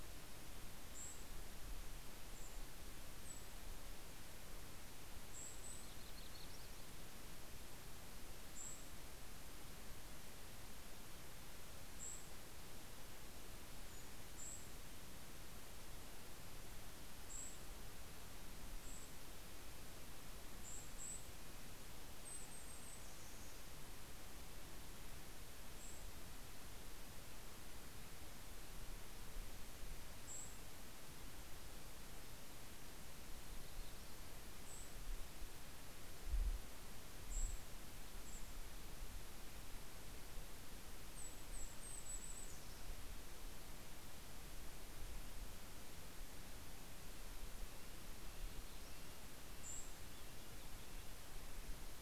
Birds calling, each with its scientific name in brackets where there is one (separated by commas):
Red-breasted Nuthatch (Sitta canadensis), Golden-crowned Kinglet (Regulus satrapa), Yellow-rumped Warbler (Setophaga coronata)